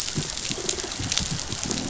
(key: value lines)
label: biophony, croak
recorder: SoundTrap 500